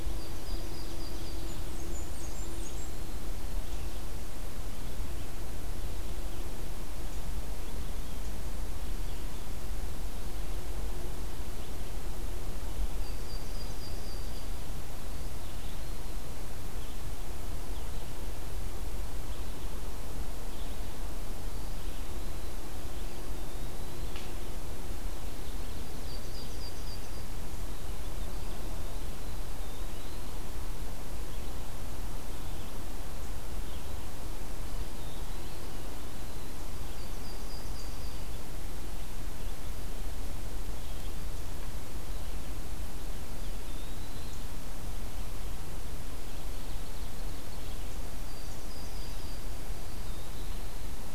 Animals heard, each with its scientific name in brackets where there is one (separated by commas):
Ovenbird (Seiurus aurocapilla), Yellow-rumped Warbler (Setophaga coronata), Eastern Wood-Pewee (Contopus virens), Blackburnian Warbler (Setophaga fusca)